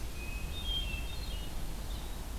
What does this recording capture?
Hermit Thrush